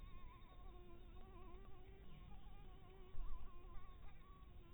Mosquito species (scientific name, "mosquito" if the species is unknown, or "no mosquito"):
Anopheles harrisoni